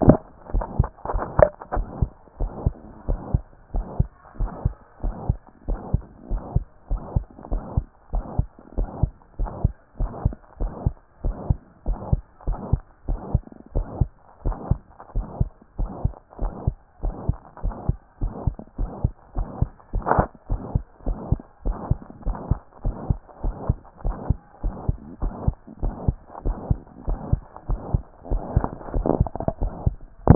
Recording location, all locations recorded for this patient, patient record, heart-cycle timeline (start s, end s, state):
tricuspid valve (TV)
aortic valve (AV)+pulmonary valve (PV)+tricuspid valve (TV)+mitral valve (MV)
#Age: Child
#Sex: Female
#Height: 133.0 cm
#Weight: 29.2 kg
#Pregnancy status: False
#Murmur: Present
#Murmur locations: aortic valve (AV)+mitral valve (MV)+pulmonary valve (PV)+tricuspid valve (TV)
#Most audible location: mitral valve (MV)
#Systolic murmur timing: Holosystolic
#Systolic murmur shape: Plateau
#Systolic murmur grading: III/VI or higher
#Systolic murmur pitch: Medium
#Systolic murmur quality: Musical
#Diastolic murmur timing: nan
#Diastolic murmur shape: nan
#Diastolic murmur grading: nan
#Diastolic murmur pitch: nan
#Diastolic murmur quality: nan
#Outcome: Abnormal
#Campaign: 2014 screening campaign
0.00	0.02	systole
0.02	0.18	S2
0.18	0.52	diastole
0.52	0.64	S1
0.64	0.78	systole
0.78	0.88	S2
0.88	1.12	diastole
1.12	1.24	S1
1.24	1.38	systole
1.38	1.48	S2
1.48	1.74	diastole
1.74	1.86	S1
1.86	2.00	systole
2.00	2.10	S2
2.10	2.40	diastole
2.40	2.52	S1
2.52	2.64	systole
2.64	2.74	S2
2.74	3.08	diastole
3.08	3.20	S1
3.20	3.32	systole
3.32	3.42	S2
3.42	3.74	diastole
3.74	3.86	S1
3.86	3.98	systole
3.98	4.08	S2
4.08	4.40	diastole
4.40	4.50	S1
4.50	4.64	systole
4.64	4.74	S2
4.74	5.04	diastole
5.04	5.16	S1
5.16	5.28	systole
5.28	5.38	S2
5.38	5.68	diastole
5.68	5.80	S1
5.80	5.92	systole
5.92	6.02	S2
6.02	6.30	diastole
6.30	6.42	S1
6.42	6.54	systole
6.54	6.64	S2
6.64	6.90	diastole
6.90	7.02	S1
7.02	7.14	systole
7.14	7.24	S2
7.24	7.50	diastole
7.50	7.62	S1
7.62	7.76	systole
7.76	7.86	S2
7.86	8.12	diastole
8.12	8.24	S1
8.24	8.38	systole
8.38	8.46	S2
8.46	8.76	diastole
8.76	8.88	S1
8.88	9.02	systole
9.02	9.10	S2
9.10	9.40	diastole
9.40	9.50	S1
9.50	9.62	systole
9.62	9.72	S2
9.72	10.00	diastole
10.00	10.10	S1
10.10	10.24	systole
10.24	10.34	S2
10.34	10.60	diastole
10.60	10.72	S1
10.72	10.84	systole
10.84	10.94	S2
10.94	11.24	diastole
11.24	11.36	S1
11.36	11.48	systole
11.48	11.58	S2
11.58	11.86	diastole
11.86	11.98	S1
11.98	12.10	systole
12.10	12.22	S2
12.22	12.46	diastole
12.46	12.58	S1
12.58	12.72	systole
12.72	12.80	S2
12.80	13.08	diastole
13.08	13.20	S1
13.20	13.32	systole
13.32	13.42	S2
13.42	13.74	diastole
13.74	13.86	S1
13.86	14.00	systole
14.00	14.08	S2
14.08	14.44	diastole
14.44	14.56	S1
14.56	14.70	systole
14.70	14.80	S2
14.80	15.16	diastole
15.16	15.26	S1
15.26	15.40	systole
15.40	15.48	S2
15.48	15.78	diastole
15.78	15.90	S1
15.90	16.04	systole
16.04	16.12	S2
16.12	16.40	diastole
16.40	16.52	S1
16.52	16.66	systole
16.66	16.76	S2
16.76	17.04	diastole
17.04	17.14	S1
17.14	17.28	systole
17.28	17.36	S2
17.36	17.64	diastole
17.64	17.74	S1
17.74	17.88	systole
17.88	17.96	S2
17.96	18.22	diastole
18.22	18.32	S1
18.32	18.46	systole
18.46	18.56	S2
18.56	18.78	diastole
18.78	18.90	S1
18.90	19.02	systole
19.02	19.12	S2
19.12	19.36	diastole
19.36	19.48	S1
19.48	19.60	systole
19.60	19.70	S2
19.70	19.94	diastole
19.94	20.04	S1
20.04	20.16	systole
20.16	20.26	S2
20.26	20.50	diastole
20.50	20.62	S1
20.62	20.74	systole
20.74	20.84	S2
20.84	21.06	diastole
21.06	21.18	S1
21.18	21.30	systole
21.30	21.40	S2
21.40	21.66	diastole
21.66	21.76	S1
21.76	21.90	systole
21.90	21.98	S2
21.98	22.26	diastole
22.26	22.38	S1
22.38	22.50	systole
22.50	22.58	S2
22.58	22.84	diastole
22.84	22.96	S1
22.96	23.08	systole
23.08	23.18	S2
23.18	23.44	diastole
23.44	23.56	S1
23.56	23.68	systole
23.68	23.78	S2
23.78	24.04	diastole
24.04	24.16	S1
24.16	24.28	systole
24.28	24.38	S2
24.38	24.64	diastole
24.64	24.74	S1
24.74	24.88	systole
24.88	24.98	S2
24.98	25.22	diastole
25.22	25.34	S1
25.34	25.46	systole
25.46	25.56	S2
25.56	25.82	diastole
25.82	25.94	S1
25.94	26.06	systole
26.06	26.16	S2
26.16	26.44	diastole
26.44	26.56	S1
26.56	26.68	systole
26.68	26.78	S2
26.78	27.08	diastole
27.08	27.20	S1
27.20	27.32	systole
27.32	27.42	S2
27.42	27.68	diastole
27.68	27.80	S1
27.80	27.92	systole
27.92	28.02	S2
28.02	28.30	diastole
28.30	28.42	S1
28.42	28.54	systole
28.54	28.66	S2
28.66	28.94	diastole
28.94	29.06	S1
29.06	29.18	systole
29.18	29.28	S2
29.28	29.60	diastole
29.60	29.72	S1
29.72	29.84	systole
29.84	29.96	S2
29.96	30.26	diastole
30.26	30.35	S1